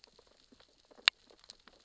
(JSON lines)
{"label": "biophony, sea urchins (Echinidae)", "recorder": "SoundTrap 600 or HydroMoth"}